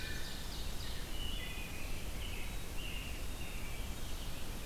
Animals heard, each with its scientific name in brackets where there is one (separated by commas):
Black-capped Chickadee (Poecile atricapillus), Ovenbird (Seiurus aurocapilla), Wood Thrush (Hylocichla mustelina), American Robin (Turdus migratorius)